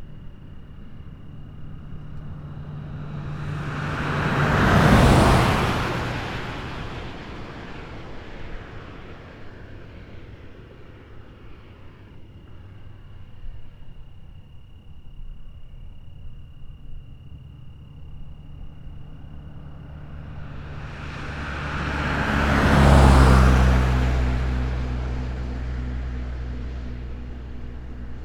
Are there animals making noise?
no